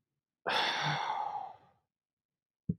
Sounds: Sigh